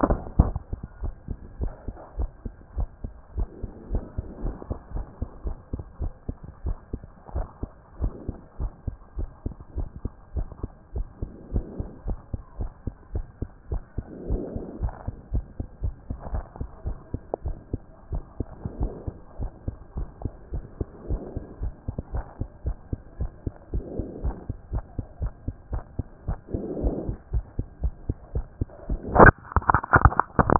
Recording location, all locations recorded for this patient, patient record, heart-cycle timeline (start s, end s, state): mitral valve (MV)
aortic valve (AV)+pulmonary valve (PV)+tricuspid valve (TV)+mitral valve (MV)
#Age: Child
#Sex: Female
#Height: 116.0 cm
#Weight: 19.1 kg
#Pregnancy status: False
#Murmur: Absent
#Murmur locations: nan
#Most audible location: nan
#Systolic murmur timing: nan
#Systolic murmur shape: nan
#Systolic murmur grading: nan
#Systolic murmur pitch: nan
#Systolic murmur quality: nan
#Diastolic murmur timing: nan
#Diastolic murmur shape: nan
#Diastolic murmur grading: nan
#Diastolic murmur pitch: nan
#Diastolic murmur quality: nan
#Outcome: Normal
#Campaign: 2014 screening campaign
0.00	0.18	S2
0.18	0.36	diastole
0.36	0.54	S1
0.54	0.70	systole
0.70	0.82	S2
0.82	1.00	diastole
1.00	1.14	S1
1.14	1.28	systole
1.28	1.38	S2
1.38	1.58	diastole
1.58	1.72	S1
1.72	1.86	systole
1.86	1.96	S2
1.96	2.16	diastole
2.16	2.30	S1
2.30	2.44	systole
2.44	2.56	S2
2.56	2.76	diastole
2.76	2.90	S1
2.90	3.02	systole
3.02	3.14	S2
3.14	3.34	diastole
3.34	3.50	S1
3.50	3.60	systole
3.60	3.70	S2
3.70	3.88	diastole
3.88	4.04	S1
4.04	4.16	systole
4.16	4.26	S2
4.26	4.40	diastole
4.40	4.54	S1
4.54	4.68	systole
4.68	4.78	S2
4.78	4.94	diastole
4.94	5.06	S1
5.06	5.18	systole
5.18	5.28	S2
5.28	5.44	diastole
5.44	5.58	S1
5.58	5.72	systole
5.72	5.84	S2
5.84	6.00	diastole
6.00	6.12	S1
6.12	6.24	systole
6.24	6.34	S2
6.34	6.48	diastole
6.48	6.54	S1
6.54	6.64	systole
6.64	6.78	S2
6.78	6.92	diastole
6.92	7.00	S1
7.00	7.10	systole
7.10	7.16	S2
7.16	7.34	diastole
7.34	7.48	S1
7.48	7.62	systole
7.62	7.76	S2
7.76	7.98	diastole
7.98	8.14	S1
8.14	8.28	systole
8.28	8.38	S2
8.38	8.58	diastole
8.58	8.72	S1
8.72	8.86	systole
8.86	8.98	S2
8.98	9.16	diastole
9.16	9.30	S1
9.30	9.44	systole
9.44	9.58	S2
9.58	9.74	diastole
9.74	9.88	S1
9.88	10.02	systole
10.02	10.12	S2
10.12	10.34	diastole
10.34	10.48	S1
10.48	10.62	systole
10.62	10.74	S2
10.74	10.94	diastole
10.94	11.08	S1
11.08	11.20	systole
11.20	11.30	S2
11.30	11.50	diastole
11.50	11.64	S1
11.64	11.78	systole
11.78	11.88	S2
11.88	12.06	diastole
12.06	12.18	S1
12.18	12.32	systole
12.32	12.44	S2
12.44	12.58	diastole
12.58	12.72	S1
12.72	12.86	systole
12.86	12.94	S2
12.94	13.12	diastole
13.12	13.26	S1
13.26	13.40	systole
13.40	13.50	S2
13.50	13.70	diastole
13.70	13.82	S1
13.82	13.94	systole
13.94	14.06	S2
14.06	14.26	diastole
14.26	14.40	S1
14.40	14.52	systole
14.52	14.62	S2
14.62	14.80	diastole
14.80	14.94	S1
14.94	15.06	systole
15.06	15.16	S2
15.16	15.32	diastole
15.32	15.46	S1
15.46	15.58	systole
15.58	15.66	S2
15.66	15.82	diastole
15.82	15.96	S1
15.96	16.08	systole
16.08	16.18	S2
16.18	16.32	diastole
16.32	16.46	S1
16.46	16.60	systole
16.60	16.72	S2
16.72	16.86	diastole
16.86	16.98	S1
16.98	17.10	systole
17.10	17.24	S2
17.24	17.44	diastole
17.44	17.58	S1
17.58	17.74	systole
17.74	17.88	S2
17.88	18.10	diastole
18.10	18.24	S1
18.24	18.38	systole
18.38	18.52	S2
18.52	18.74	diastole
18.74	18.92	S1
18.92	19.06	systole
19.06	19.16	S2
19.16	19.38	diastole
19.38	19.52	S1
19.52	19.66	systole
19.66	19.78	S2
19.78	19.96	diastole
19.96	20.10	S1
20.10	20.22	systole
20.22	20.34	S2
20.34	20.52	diastole
20.52	20.66	S1
20.66	20.78	systole
20.78	20.90	S2
20.90	21.08	diastole
21.08	21.22	S1
21.22	21.32	systole
21.32	21.44	S2
21.44	21.60	diastole
21.60	21.74	S1
21.74	21.84	systole
21.84	21.96	S2
21.96	22.12	diastole
22.12	22.26	S1
22.26	22.40	systole
22.40	22.48	S2
22.48	22.64	diastole
22.64	22.76	S1
22.76	22.88	systole
22.88	23.02	S2
23.02	23.18	diastole
23.18	23.32	S1
23.32	23.44	systole
23.44	23.54	S2
23.54	23.72	diastole
23.72	23.84	S1
23.84	23.98	systole
23.98	24.08	S2
24.08	24.22	diastole
24.22	24.36	S1
24.36	24.48	systole
24.48	24.58	S2
24.58	24.72	diastole
24.72	24.84	S1
24.84	24.96	systole
24.96	25.06	S2
25.06	25.22	diastole
25.22	25.34	S1
25.34	25.46	systole
25.46	25.56	S2
25.56	25.72	diastole
25.72	25.84	S1
25.84	25.96	systole
25.96	26.08	S2
26.08	26.26	diastole
26.26	26.40	S1
26.40	26.54	systole
26.54	26.64	S2
26.64	26.76	diastole
26.76	26.94	S1
26.94	27.06	systole
27.06	27.18	S2
27.18	27.32	diastole
27.32	27.46	S1
27.46	27.56	systole
27.56	27.66	S2
27.66	27.82	diastole
27.82	27.94	S1
27.94	28.06	systole
28.06	28.18	S2
28.18	28.34	diastole
28.34	28.46	S1
28.46	28.58	systole
28.58	28.70	S2
28.70	28.88	diastole
28.88	29.02	S1
29.02	29.14	systole
29.14	29.30	S2
29.30	29.48	diastole
29.48	29.64	S1
29.64	29.70	systole
29.70	29.82	S2
29.82	29.96	diastole
29.96	30.14	S1
30.14	30.24	systole
30.24	30.28	S2
30.28	30.44	diastole
30.44	30.59	S1